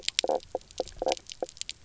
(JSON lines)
{"label": "biophony, knock croak", "recorder": "SoundTrap 300"}